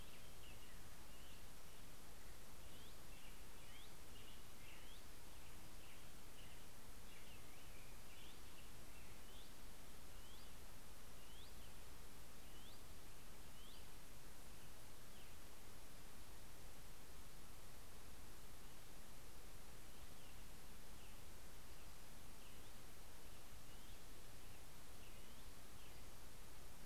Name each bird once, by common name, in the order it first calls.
Hutton's Vireo, American Robin